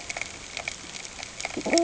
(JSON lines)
{"label": "ambient", "recorder": "HydroMoth"}